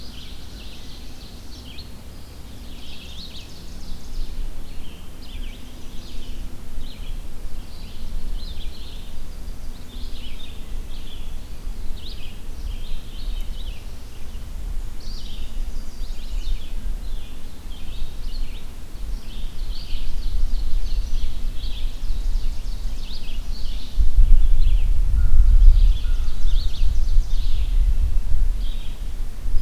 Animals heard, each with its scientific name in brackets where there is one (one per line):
Red-eyed Vireo (Vireo olivaceus)
Ovenbird (Seiurus aurocapilla)
Chestnut-sided Warbler (Setophaga pensylvanica)
American Crow (Corvus brachyrhynchos)
Eastern Wood-Pewee (Contopus virens)
Indigo Bunting (Passerina cyanea)